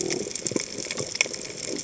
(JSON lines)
{"label": "biophony", "recorder": "HydroMoth"}